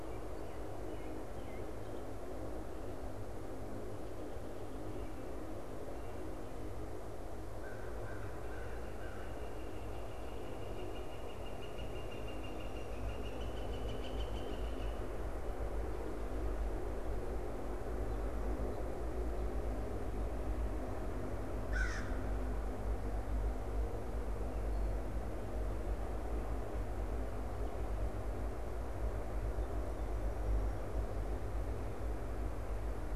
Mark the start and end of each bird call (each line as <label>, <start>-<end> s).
American Robin (Turdus migratorius), 0.0-1.8 s
American Crow (Corvus brachyrhynchos), 7.4-9.5 s
Northern Flicker (Colaptes auratus), 9.1-15.3 s
American Crow (Corvus brachyrhynchos), 21.6-22.2 s